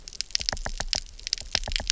{"label": "biophony, knock", "recorder": "SoundTrap 300"}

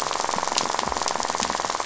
{"label": "biophony, rattle", "recorder": "SoundTrap 500"}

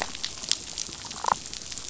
{"label": "biophony, damselfish", "recorder": "SoundTrap 500"}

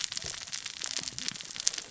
{"label": "biophony, cascading saw", "recorder": "SoundTrap 600 or HydroMoth"}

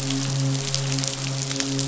{"label": "biophony, midshipman", "recorder": "SoundTrap 500"}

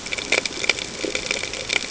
{"label": "ambient", "recorder": "HydroMoth"}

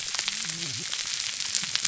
{"label": "biophony, whup", "recorder": "SoundTrap 300"}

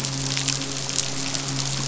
{"label": "biophony, midshipman", "recorder": "SoundTrap 500"}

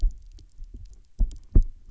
{"label": "biophony, double pulse", "recorder": "SoundTrap 300"}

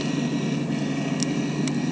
{"label": "anthrophony, boat engine", "recorder": "HydroMoth"}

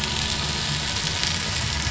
{"label": "anthrophony, boat engine", "recorder": "SoundTrap 500"}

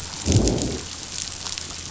{"label": "biophony, growl", "recorder": "SoundTrap 500"}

